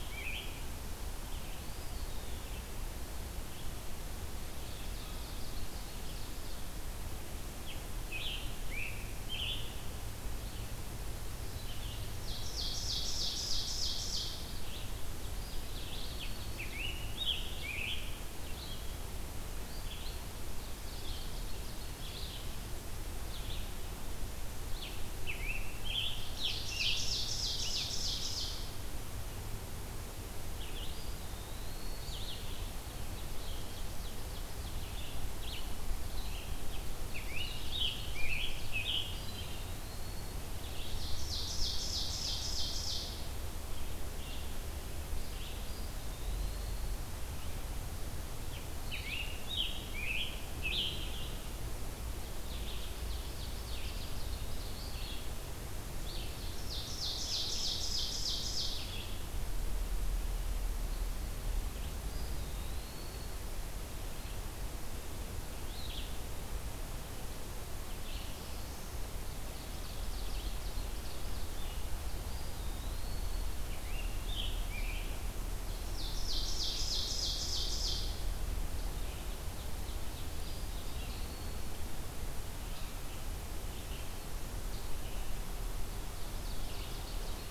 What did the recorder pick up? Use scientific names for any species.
Piranga olivacea, Vireo olivaceus, Contopus virens, Seiurus aurocapilla